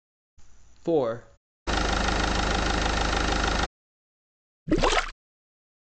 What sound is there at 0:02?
engine